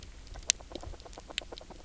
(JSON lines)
{"label": "biophony, knock croak", "recorder": "SoundTrap 300"}